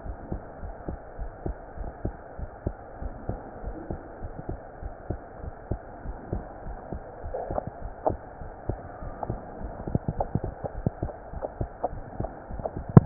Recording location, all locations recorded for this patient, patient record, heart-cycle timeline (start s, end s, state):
pulmonary valve (PV)
aortic valve (AV)+pulmonary valve (PV)+tricuspid valve (TV)+mitral valve (MV)
#Age: Child
#Sex: Female
#Height: 130.0 cm
#Weight: 34.3 kg
#Pregnancy status: False
#Murmur: Absent
#Murmur locations: nan
#Most audible location: nan
#Systolic murmur timing: nan
#Systolic murmur shape: nan
#Systolic murmur grading: nan
#Systolic murmur pitch: nan
#Systolic murmur quality: nan
#Diastolic murmur timing: nan
#Diastolic murmur shape: nan
#Diastolic murmur grading: nan
#Diastolic murmur pitch: nan
#Diastolic murmur quality: nan
#Outcome: Normal
#Campaign: 2015 screening campaign
0.00	0.04	unannotated
0.04	0.16	S1
0.16	0.30	systole
0.30	0.42	S2
0.42	0.62	diastole
0.62	0.74	S1
0.74	0.88	systole
0.88	1.00	S2
1.00	1.20	diastole
1.20	1.32	S1
1.32	1.44	systole
1.44	1.60	S2
1.60	1.77	diastole
1.77	1.92	S1
1.92	2.01	systole
2.01	2.16	S2
2.16	2.38	diastole
2.38	2.50	S1
2.50	2.62	systole
2.62	2.74	S2
2.74	2.98	diastole
2.98	3.16	S1
3.16	3.26	systole
3.26	3.40	S2
3.40	3.60	diastole
3.60	3.76	S1
3.76	3.88	systole
3.88	4.00	S2
4.00	4.22	diastole
4.22	4.36	S1
4.36	4.50	systole
4.50	4.60	S2
4.60	4.82	diastole
4.82	4.92	S1
4.92	5.06	systole
5.06	5.18	S2
5.18	5.40	diastole
5.40	5.54	S1
5.54	5.68	systole
5.68	5.80	S2
5.80	6.06	diastole
6.06	6.18	S1
6.18	6.30	systole
6.30	6.44	S2
6.44	6.64	diastole
6.64	6.78	S1
6.78	6.92	systole
6.92	7.02	S2
7.02	7.24	diastole
7.24	7.38	S1
7.38	7.48	systole
7.48	7.62	S2
7.62	7.82	diastole
7.82	7.92	S1
7.92	8.06	systole
8.06	8.20	S2
8.20	8.42	diastole
8.42	8.52	S1
8.52	8.68	systole
8.68	8.80	S2
8.80	9.02	diastole
9.02	9.14	S1
9.14	9.28	systole
9.28	9.40	S2
9.40	9.62	diastole
9.62	9.74	S1
9.74	13.06	unannotated